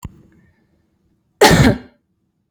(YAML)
expert_labels:
- quality: good
  cough_type: dry
  dyspnea: false
  wheezing: false
  stridor: false
  choking: false
  congestion: false
  nothing: true
  diagnosis: healthy cough
  severity: pseudocough/healthy cough
age: 31
gender: female
respiratory_condition: false
fever_muscle_pain: false
status: healthy